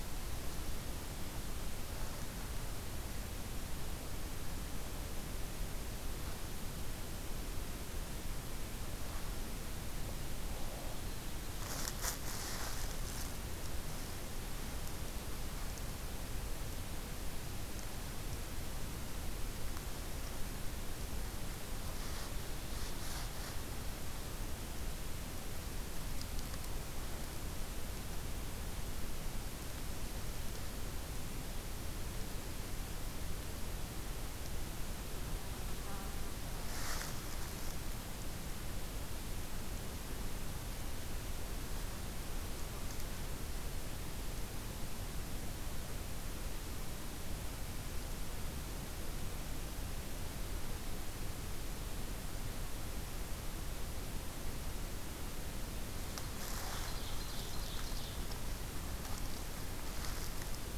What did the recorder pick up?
Ovenbird